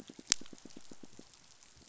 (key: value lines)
label: biophony, pulse
recorder: SoundTrap 500